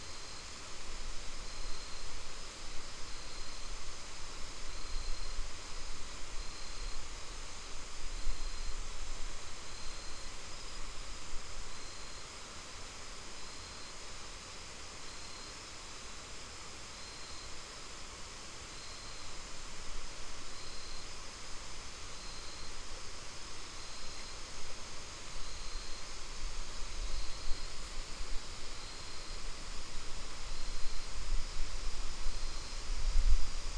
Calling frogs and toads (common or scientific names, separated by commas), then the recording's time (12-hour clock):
none
5:30pm